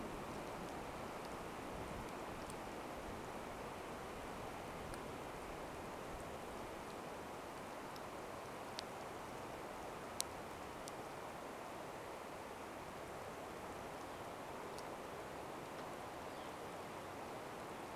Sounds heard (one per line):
Northern Flicker call